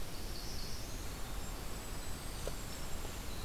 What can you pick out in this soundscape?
Northern Parula, Golden-crowned Kinglet, Winter Wren